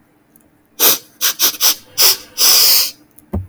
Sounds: Sniff